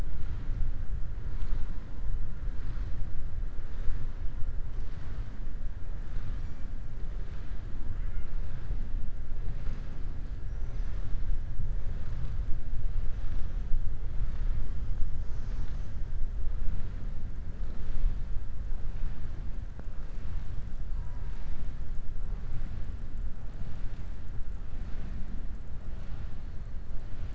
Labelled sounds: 10.4	11.1	killer whale, southern resident, 4.0 to 6.6 kHz

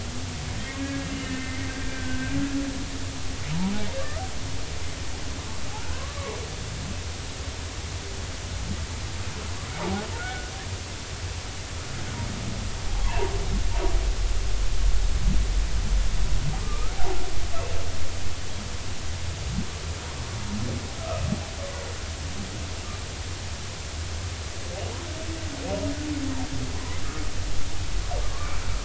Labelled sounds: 0.6	2.3	humpback whale, 1.5 to 2.2 kHz
5.8	6.1	humpback whale, 0.96 to 1.7 kHz
10.1	10.5	humpback whale, 1.4 to 1.5 kHz
13.0	13.3	humpback whale, 0.83 to 1.1 kHz
16.6	17.2	humpback whale, 0.80 to 1.5 kHz
26.7	27.0	humpback whale, 0.93 to 1.1 kHz

